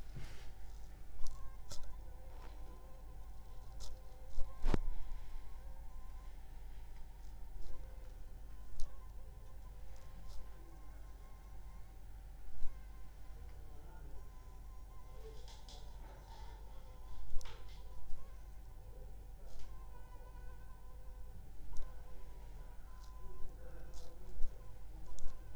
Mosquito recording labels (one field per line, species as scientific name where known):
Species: Anopheles funestus s.l.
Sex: female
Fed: unfed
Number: one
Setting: cup